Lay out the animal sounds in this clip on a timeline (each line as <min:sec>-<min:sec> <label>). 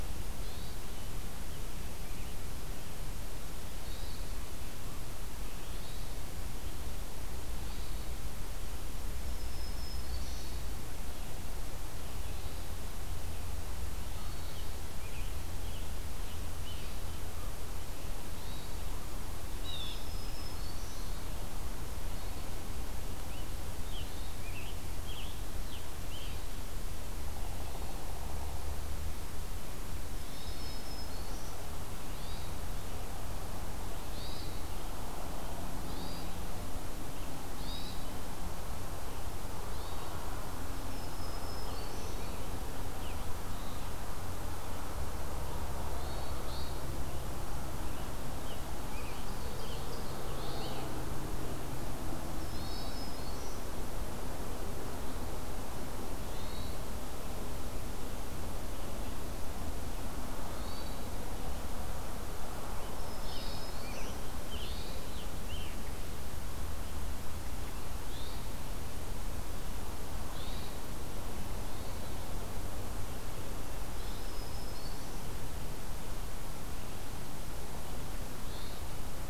0:00.3-0:00.8 Hermit Thrush (Catharus guttatus)
0:03.7-0:04.2 Hermit Thrush (Catharus guttatus)
0:07.5-0:08.1 Hermit Thrush (Catharus guttatus)
0:09.2-0:10.4 Black-throated Green Warbler (Setophaga virens)
0:10.2-0:10.7 Hermit Thrush (Catharus guttatus)
0:13.8-0:16.9 Scarlet Tanager (Piranga olivacea)
0:18.3-0:18.9 Hermit Thrush (Catharus guttatus)
0:19.6-0:20.0 Blue Jay (Cyanocitta cristata)
0:19.7-0:21.1 Black-throated Green Warbler (Setophaga virens)
0:23.2-0:26.4 Scarlet Tanager (Piranga olivacea)
0:27.0-0:28.9 Pileated Woodpecker (Dryocopus pileatus)
0:30.0-0:31.6 Black-throated Green Warbler (Setophaga virens)
0:30.1-0:30.7 Hermit Thrush (Catharus guttatus)
0:32.1-0:32.5 Hermit Thrush (Catharus guttatus)
0:34.1-0:34.5 Hermit Thrush (Catharus guttatus)
0:35.8-0:36.3 Hermit Thrush (Catharus guttatus)
0:37.5-0:38.0 Hermit Thrush (Catharus guttatus)
0:39.7-0:40.1 Hermit Thrush (Catharus guttatus)
0:40.8-0:42.2 Black-throated Green Warbler (Setophaga virens)
0:41.6-0:44.0 Scarlet Tanager (Piranga olivacea)
0:45.8-0:47.0 Hermit Thrush (Catharus guttatus)
0:46.9-0:50.9 Scarlet Tanager (Piranga olivacea)
0:48.9-0:50.2 Ovenbird (Seiurus aurocapilla)
0:50.1-0:51.0 Hermit Thrush (Catharus guttatus)
0:52.2-0:53.8 Black-throated Green Warbler (Setophaga virens)
0:56.2-0:56.9 Hermit Thrush (Catharus guttatus)
1:00.3-1:01.1 Hermit Thrush (Catharus guttatus)
1:02.7-1:04.2 Black-throated Green Warbler (Setophaga virens)
1:03.2-1:05.9 Scarlet Tanager (Piranga olivacea)
1:04.5-1:05.1 Hermit Thrush (Catharus guttatus)
1:08.0-1:08.5 Hermit Thrush (Catharus guttatus)
1:10.3-1:10.8 Hermit Thrush (Catharus guttatus)
1:13.8-1:15.2 Black-throated Green Warbler (Setophaga virens)
1:18.3-1:18.9 Hermit Thrush (Catharus guttatus)